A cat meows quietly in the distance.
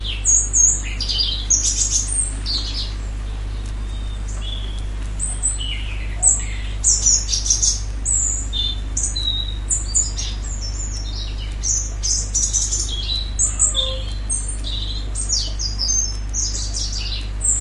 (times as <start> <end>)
13.3 14.1